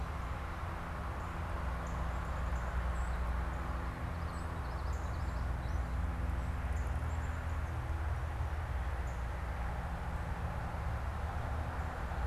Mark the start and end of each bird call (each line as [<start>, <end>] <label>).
[1.70, 12.27] Northern Cardinal (Cardinalis cardinalis)
[2.80, 3.10] Song Sparrow (Melospiza melodia)
[4.00, 6.00] Common Yellowthroat (Geothlypis trichas)
[6.90, 7.40] Black-capped Chickadee (Poecile atricapillus)